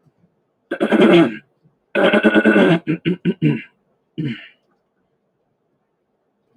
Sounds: Throat clearing